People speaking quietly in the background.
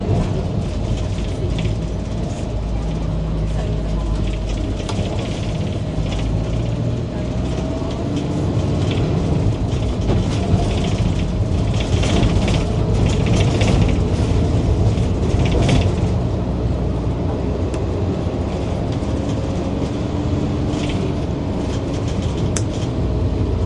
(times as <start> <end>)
1.2 6.0